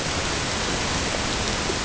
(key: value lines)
label: ambient
recorder: HydroMoth